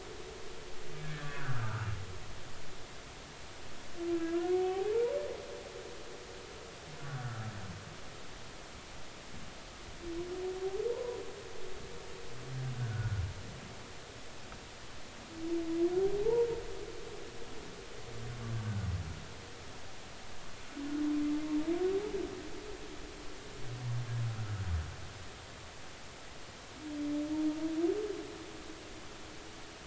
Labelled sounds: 1.0	1.9	humpback whale, 1.1 to 1.9 kHz
4.1	4.9	humpback whale, 0.80 to 1.5 kHz
7.1	7.5	humpback whale, 1.2 to 1.5 kHz
12.8	13.2	humpback whale, 1.3 to 1.5 kHz
16.2	16.5	humpback whale, 0.80 to 0.99 kHz

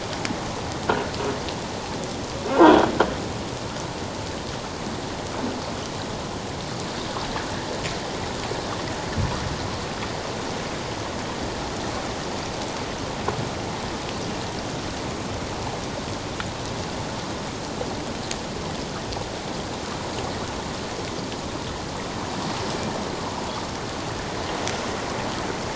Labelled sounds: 2.5	2.8	croaking sound likely from a nearby submerged object, 1.4 to 1.7 kHz

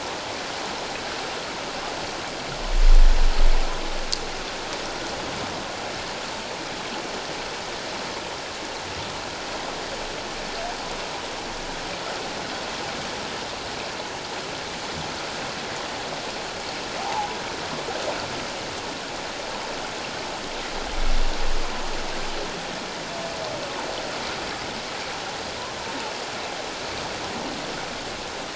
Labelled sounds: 17.0	17.3	humpback whale, 0.78 to 1.1 kHz

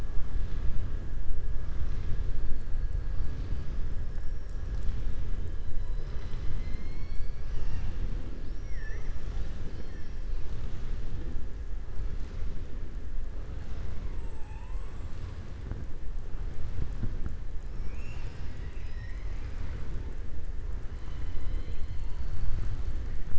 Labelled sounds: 14.1	15.2	killer whale, southern resident, 6.4 to 8.0 kHz

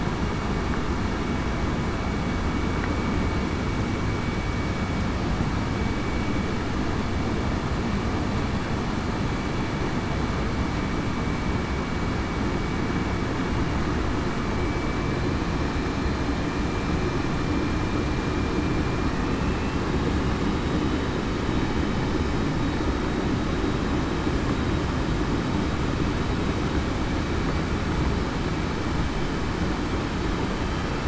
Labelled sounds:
19.2	19.8	vessel noise, 2.6 to 2.7 kHz

